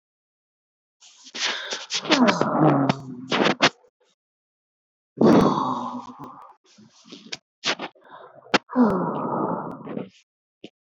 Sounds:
Sigh